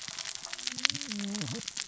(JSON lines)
{"label": "biophony, cascading saw", "recorder": "SoundTrap 600 or HydroMoth"}